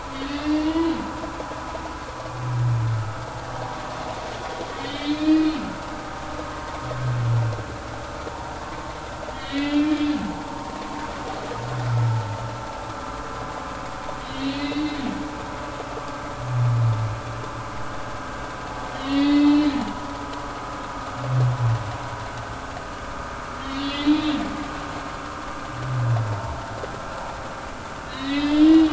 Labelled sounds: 0.3	1.0	humpback whale, 1.8 to 4.9 kHz
4.8	5.6	humpback whale, 1.8 to 4.2 kHz
9.3	10.1	humpback whale, 1.7 to 4.1 kHz
10.6	11.1	humpback whale, 3.1 to 3.4 kHz
14.2	15.0	humpback whale, 1.9 to 4.3 kHz
18.9	19.7	humpback whale, 1.9 to 4.7 kHz
23.7	24.3	humpback whale, 2.7 to 4.5 kHz
28.0	28.9	humpback whale, 1.7 to 4.2 kHz

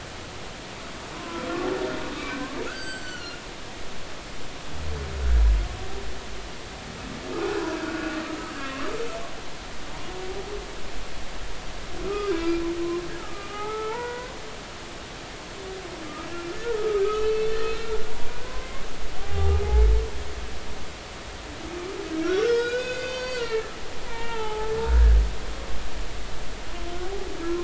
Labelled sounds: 1.2	1.4	humpback whale, 0.96 to 1.1 kHz
2.1	3.4	humpback whale, 1.1 to 7.8 kHz
7.8	8.9	humpback whale, 1.0 to 1.5 kHz
12.0	14.3	humpback whale, 0.80 to 2.4 kHz
16.2	18.7	humpback whale, 0.99 to 4.4 kHz
19.2	19.6	humpback whale, 0.80 to 1.3 kHz
22.2	25.2	humpback whale, 0.80 to 6.7 kHz

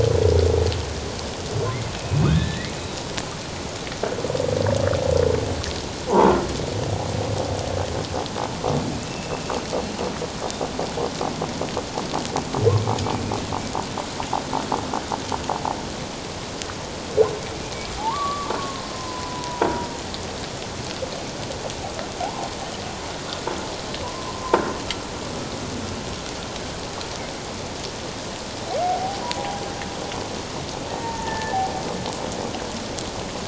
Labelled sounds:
2.0	2.8	humpback whale, 1.2 to 4.0 kHz
8.9	9.4	humpback whale, 2.4 to 2.8 kHz
18.0	19.7	humpback whale, 0.78 to 1.2 kHz
22.2	22.6	humpback whale, 0.78 to 1.1 kHz
28.8	29.2	humpback whale, 0.78 to 0.84 kHz
30.9	31.6	humpback whale, 0.78 to 1.9 kHz

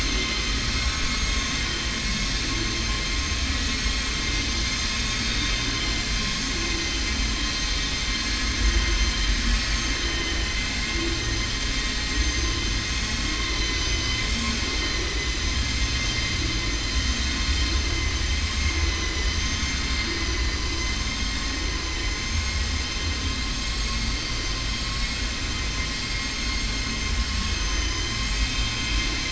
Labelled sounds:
18.8	19.4	vessel noise, 1.2 to 4.0 kHz
27.5	28.4	vessel noise, 5.1 to 7.2 kHz

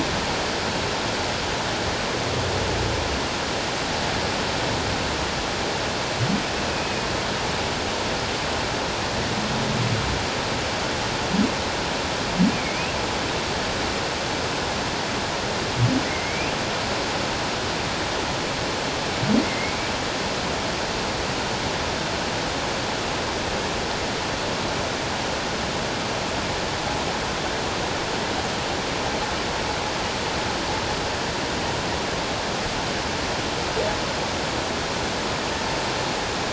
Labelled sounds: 6.7	7.1	humpback whale, 2.4 to 2.6 kHz
12.5	12.9	humpback whale, 2.1 to 2.6 kHz
16.1	16.5	humpback whale, 2.0 to 2.8 kHz
19.4	19.7	humpback whale, 2.0 to 2.2 kHz

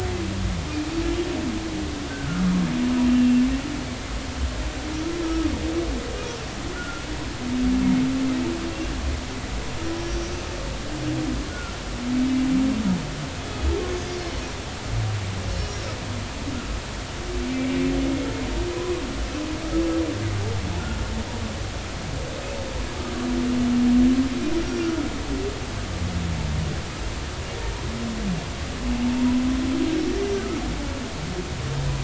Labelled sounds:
2.1	2.5	humpback whale, 1.2 to 1.7 kHz
3.0	3.4	humpback whale, 2.7 to 3.0 kHz
5.2	5.6	humpback whale, 1.1 to 1.3 kHz
6.7	7.0	humpback whale, 1.3 to 1.5 kHz
11.5	11.7	humpback whale, 1.3 to 1.5 kHz
13.4	14.4	humpback whale, 3.3 to 5.3 kHz
17.5	17.8	humpback whale, 2.2 to 2.4 kHz

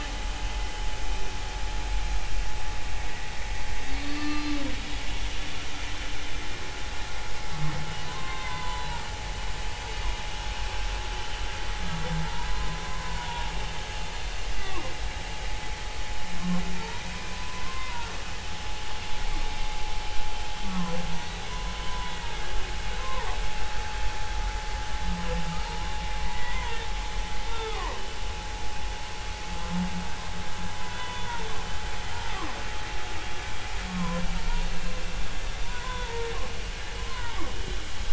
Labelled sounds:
3.9	4.5	humpback whale, 1.2 to 4.5 kHz
8.0	9.0	humpback whale, 0.90 to 4.0 kHz
12.8	13.5	humpback whale, 0.86 to 1.1 kHz
14.6	14.8	humpback whale, 0.90 to 1.2 kHz
17.3	18.1	humpback whale, 0.86 to 2.1 kHz
20.7	22.3	humpback whale, 0.93 to 3.9 kHz
23.0	23.3	humpback whale, 0.90 to 1.1 kHz
25.6	26.8	humpback whale, 0.86 to 2.1 kHz
27.5	28.0	humpback whale, 0.90 to 3.7 kHz
30.9	31.4	humpback whale, 0.96 to 3.6 kHz
33.9	34.2	humpback whale, 0.93 to 1.1 kHz
35.6	37.4	humpback whale, 0.80 to 3.6 kHz

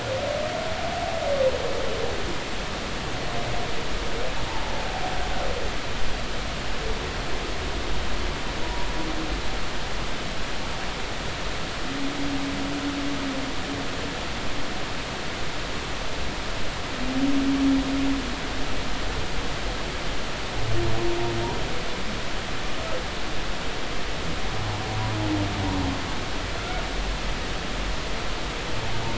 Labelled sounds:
4.5	4.7	humpback whale, 0.80 to 1.0 kHz
8.6	8.9	humpback whale, 0.93 to 1.0 kHz
26.6	26.8	humpback whale, 1.2 to 1.5 kHz

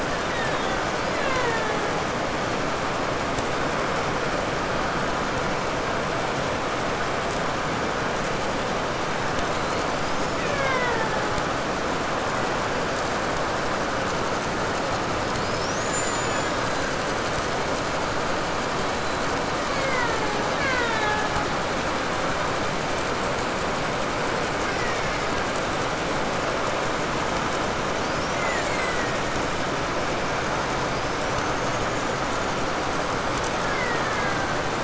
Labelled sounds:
0.0	2.1	killer whale, Bigg's (transient), 0.26 to 7.2 kHz
9.1	11.8	killer whale, Bigg's (transient), 0.24 to 7.1 kHz
15.1	17.3	killer whale, Bigg's (transient), 0.61 to 7.4 kHz
18.7	21.6	killer whale, Bigg's (transient), 0.16 to 5.3 kHz
24.4	26.3	killer whale, Bigg's (transient), 0.58 to 7.7 kHz
27.8	29.6	killer whale, Bigg's (transient), 0.48 to 8.0 kHz
30.8	32.6	killer whale, 1.3 to 7.2 kHz
33.4	34.8	killer whale, Bigg's (transient), 0.67 to 2.5 kHz

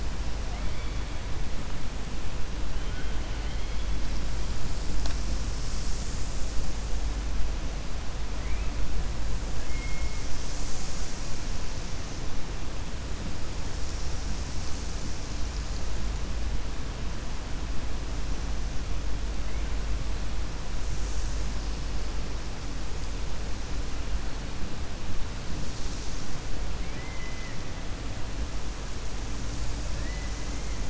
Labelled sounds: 0.4	1.0	killer whale, 1.3 to 3.1 kHz
26.8	27.6	killer whale, 1.8 to 3.0 kHz

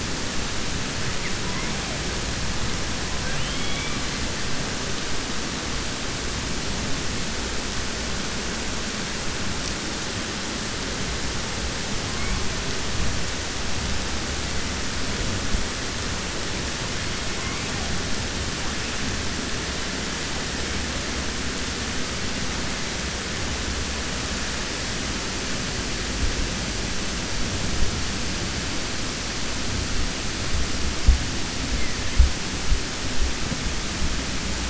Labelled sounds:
3.2	4.0	killer whale, 1.5 to 4.0 kHz

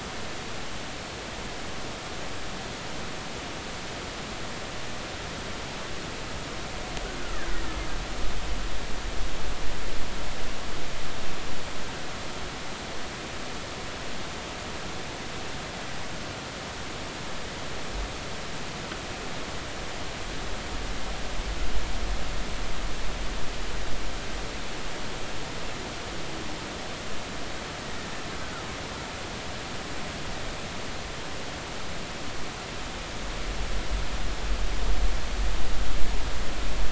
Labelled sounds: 7.3	7.6	killer whale, Bigg's (transient), 1.4 to 1.9 kHz

